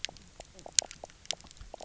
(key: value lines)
label: biophony, knock croak
recorder: SoundTrap 300